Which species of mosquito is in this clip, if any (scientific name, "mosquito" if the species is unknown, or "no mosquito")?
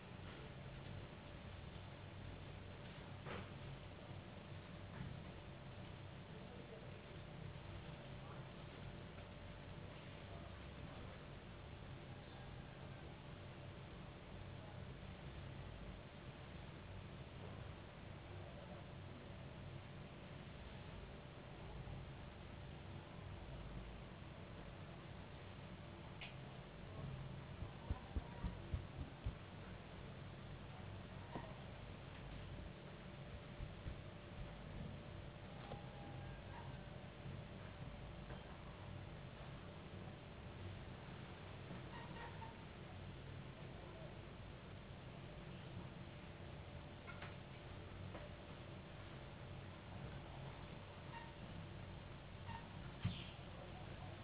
no mosquito